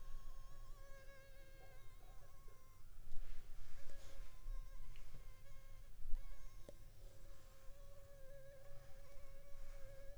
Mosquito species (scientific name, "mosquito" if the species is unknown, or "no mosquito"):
Anopheles funestus s.s.